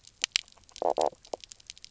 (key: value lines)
label: biophony, knock croak
recorder: SoundTrap 300